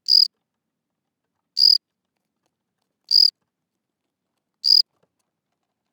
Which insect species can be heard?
Gryllus assimilis